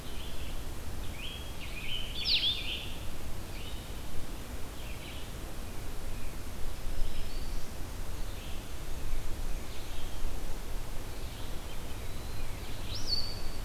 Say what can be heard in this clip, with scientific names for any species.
Vireo solitarius, Setophaga virens, Contopus virens